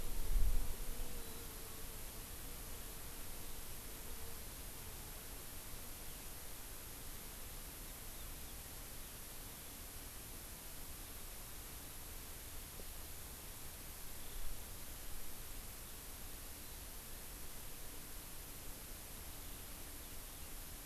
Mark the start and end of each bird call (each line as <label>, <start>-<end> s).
Warbling White-eye (Zosterops japonicus), 1.2-1.4 s